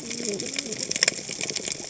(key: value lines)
label: biophony, cascading saw
recorder: HydroMoth